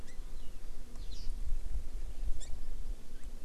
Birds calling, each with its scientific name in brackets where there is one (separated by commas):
Hawaii Amakihi (Chlorodrepanis virens)